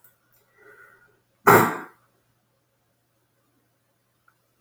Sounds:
Sneeze